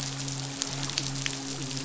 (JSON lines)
{"label": "biophony, midshipman", "recorder": "SoundTrap 500"}